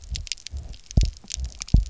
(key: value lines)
label: biophony, double pulse
recorder: SoundTrap 300